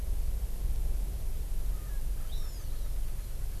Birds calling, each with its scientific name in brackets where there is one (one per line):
Hawaii Amakihi (Chlorodrepanis virens)
Erckel's Francolin (Pternistis erckelii)